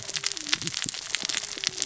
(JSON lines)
{"label": "biophony, cascading saw", "recorder": "SoundTrap 600 or HydroMoth"}